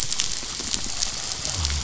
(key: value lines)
label: biophony
recorder: SoundTrap 500